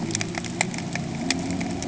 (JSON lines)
{"label": "anthrophony, boat engine", "recorder": "HydroMoth"}